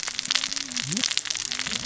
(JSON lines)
{"label": "biophony, cascading saw", "recorder": "SoundTrap 600 or HydroMoth"}